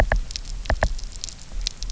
{"label": "biophony, knock", "recorder": "SoundTrap 300"}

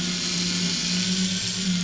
{"label": "anthrophony, boat engine", "recorder": "SoundTrap 500"}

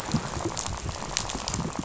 {"label": "biophony, rattle", "recorder": "SoundTrap 500"}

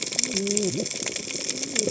{"label": "biophony, cascading saw", "recorder": "HydroMoth"}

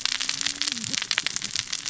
{"label": "biophony, cascading saw", "recorder": "SoundTrap 600 or HydroMoth"}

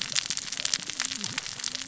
{"label": "biophony, cascading saw", "recorder": "SoundTrap 600 or HydroMoth"}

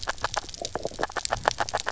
{"label": "biophony, grazing", "recorder": "SoundTrap 300"}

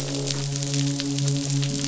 {"label": "biophony, midshipman", "recorder": "SoundTrap 500"}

